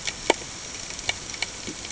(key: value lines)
label: ambient
recorder: HydroMoth